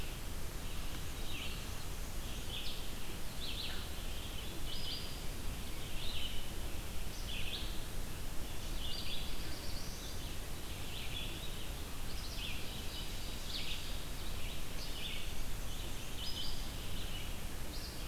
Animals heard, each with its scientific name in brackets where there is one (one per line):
Red-eyed Vireo (Vireo olivaceus)
Ovenbird (Seiurus aurocapilla)
Black-throated Blue Warbler (Setophaga caerulescens)
Black-and-white Warbler (Mniotilta varia)